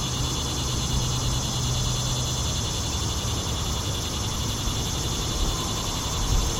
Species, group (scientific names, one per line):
Neotibicen tibicen
Cicadidae